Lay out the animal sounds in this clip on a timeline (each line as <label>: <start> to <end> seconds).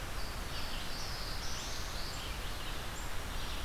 Red-eyed Vireo (Vireo olivaceus): 0.0 to 3.6 seconds
Black-throated Blue Warbler (Setophaga caerulescens): 0.1 to 2.3 seconds
Black-throated Green Warbler (Setophaga virens): 2.9 to 3.6 seconds